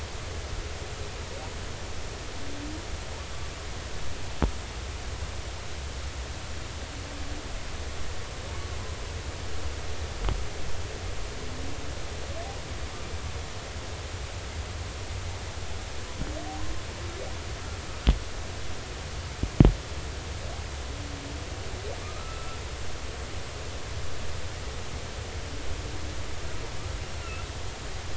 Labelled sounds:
22.0	22.6	humpback whale, 1.1 to 1.4 kHz

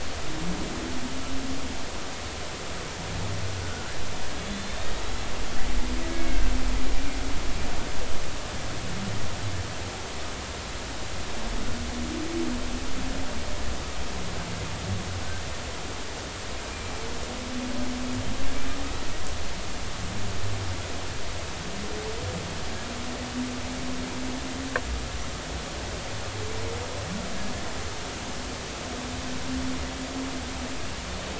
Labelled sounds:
3.6	3.9	killer whale, Bigg's (transient), 1.3 to 1.5 kHz
4.4	5.0	killer whale, Bigg's (transient), 3.3 to 3.9 kHz
6.1	6.5	killer whale, Bigg's (transient), 1.5 to 2.2 kHz
16.7	16.9	killer whale, Bigg's (transient), 2.3 to 2.5 kHz

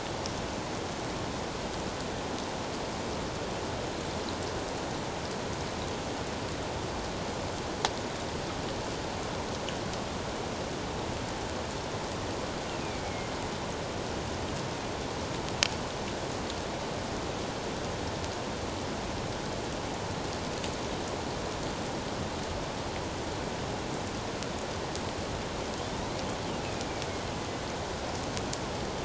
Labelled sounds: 12.7	13.4	killer whale, northern resident, A clan, AA subclan, A04 pod, 2.1 to 2.8 kHz
25.8	26.1	killer whale, northern resident, A clan, AA subclan, A04 pod, 3.3 to 3.9 kHz

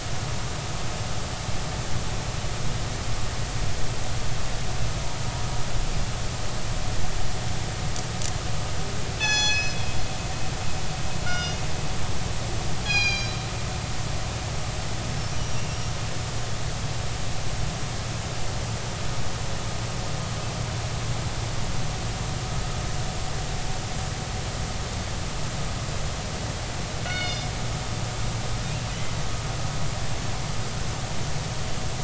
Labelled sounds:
9.2	9.8	killer whale, northern resident, G clan, call N24ii, 0.80 to 6.9 kHz
11.2	11.6	killer whale, northern resident, G clan, call N24ii, 1.3 to 5.8 kHz
12.8	13.4	killer whale, northern resident, G clan, call N24ii, 1.5 to 6.7 kHz
15.3	15.8	killer whale, northern resident, 2.7 to 5.9 kHz
15.7	15.9	killer whale, northern resident, G clan, call N24ii, 5.5 to 5.7 kHz
27.0	27.5	killer whale, northern resident, G clan, call N24ii, 1.4 to 5.1 kHz

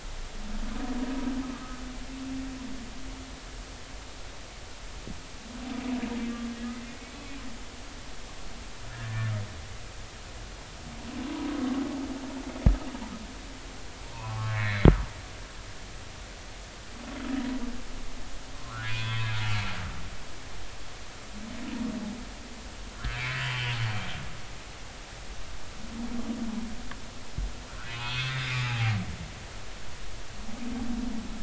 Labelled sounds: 7.2	7.4	humpback whale, 2.3 to 2.6 kHz
8.9	9.4	humpback whale, 1.2 to 1.9 kHz
14.1	14.9	humpback whale, 0.80 to 4.1 kHz
18.6	19.6	humpback whale, 0.96 to 3.5 kHz
22.9	23.7	humpback whale, 1.3 to 3.1 kHz
27.7	28.9	humpback whale, 0.80 to 3.7 kHz

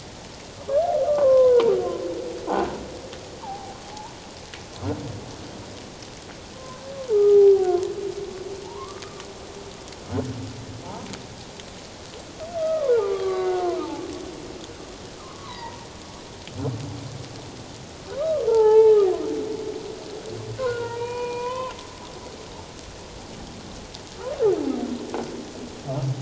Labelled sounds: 1.0	1.7	humpback whale, 0.88 to 1.3 kHz
3.4	3.8	humpback whale, 0.78 to 1.2 kHz
6.5	7.4	humpback whale, 0.97 to 1.3 kHz
8.6	9.0	humpback whale, 0.81 to 1.3 kHz
10.8	11.1	humpback whale, 0.78 to 1.1 kHz
12.6	14.1	humpback whale, 0.78 to 4.1 kHz
15.2	15.9	humpback whale, 0.88 to 2.1 kHz
18.2	19.0	humpback whale, 0.81 to 1.8 kHz
20.6	21.7	humpback whale, 0.88 to 3.1 kHz

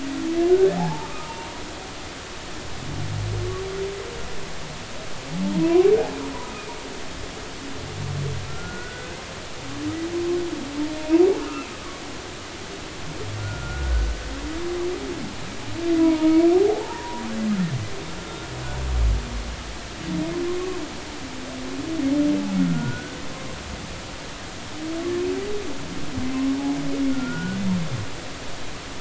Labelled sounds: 0.8	1.5	humpback whale, 0.80 to 1.3 kHz
5.6	5.9	humpback whale, 0.93 to 1.1 kHz
8.5	9.2	humpback whale, 1.3 to 1.6 kHz
11.4	11.7	humpback whale, 1.2 to 1.5 kHz
13.4	14.2	humpback whale, 1.3 to 1.5 kHz
16.0	17.2	humpback whale, 0.80 to 1.3 kHz
18.2	18.5	humpback whale, 1.3 to 1.4 kHz
22.6	23.2	humpback whale, 1.3 to 1.6 kHz
27.1	27.6	humpback whale, 1.3 to 1.5 kHz

